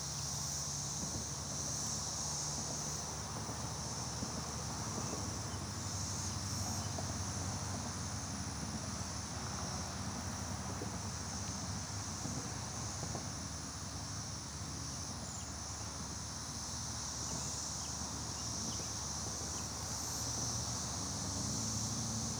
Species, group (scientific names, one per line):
Magicicada tredecassini
Cicadidae